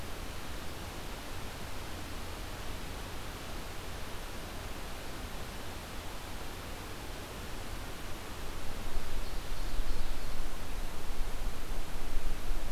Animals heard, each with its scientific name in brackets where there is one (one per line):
Ovenbird (Seiurus aurocapilla)